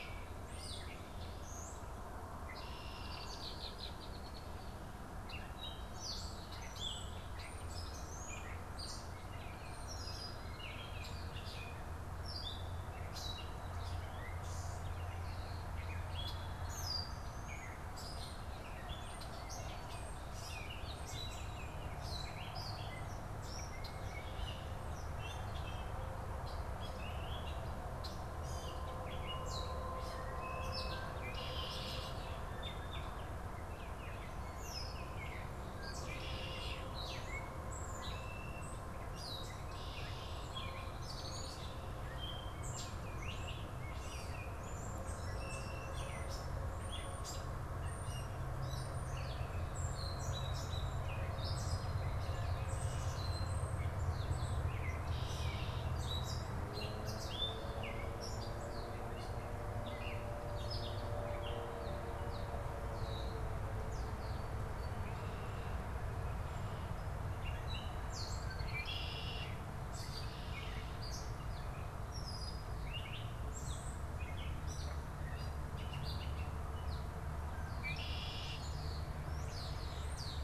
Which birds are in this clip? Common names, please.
Gray Catbird, Red-winged Blackbird, Baltimore Oriole, European Starling